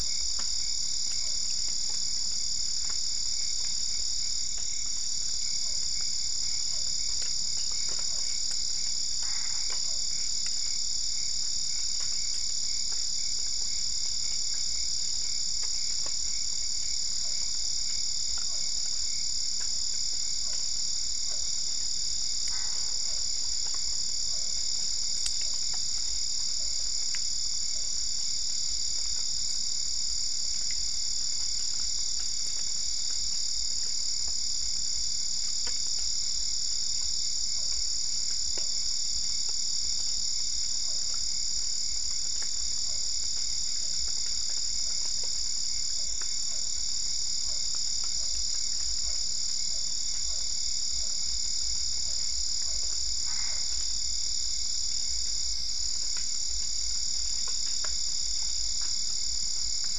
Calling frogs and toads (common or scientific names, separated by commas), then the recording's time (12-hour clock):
Physalaemus cuvieri, Boana albopunctata
10:00pm